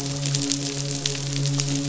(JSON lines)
{"label": "biophony, midshipman", "recorder": "SoundTrap 500"}